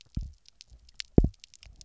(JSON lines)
{"label": "biophony, double pulse", "recorder": "SoundTrap 300"}